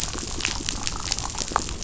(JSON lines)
{"label": "biophony, chatter", "recorder": "SoundTrap 500"}